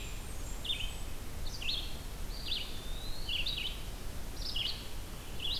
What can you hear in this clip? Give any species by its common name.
Blackburnian Warbler, Red-eyed Vireo, Eastern Wood-Pewee